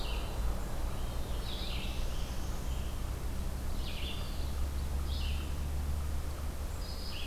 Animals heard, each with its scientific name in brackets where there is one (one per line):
Eastern Wood-Pewee (Contopus virens)
Red-eyed Vireo (Vireo olivaceus)
Black-throated Blue Warbler (Setophaga caerulescens)
American Robin (Turdus migratorius)